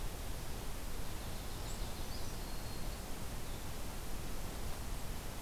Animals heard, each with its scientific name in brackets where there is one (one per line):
Black-throated Green Warbler (Setophaga virens)
Yellow-rumped Warbler (Setophaga coronata)